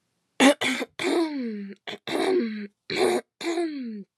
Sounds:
Throat clearing